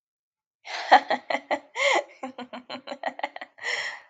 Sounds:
Laughter